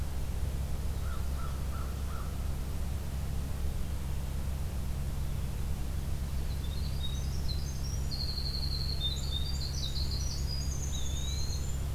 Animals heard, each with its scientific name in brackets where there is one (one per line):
Winter Wren (Troglodytes hiemalis)
American Crow (Corvus brachyrhynchos)
Eastern Wood-Pewee (Contopus virens)